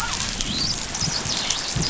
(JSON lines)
{"label": "biophony, dolphin", "recorder": "SoundTrap 500"}